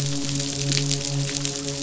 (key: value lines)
label: biophony, midshipman
recorder: SoundTrap 500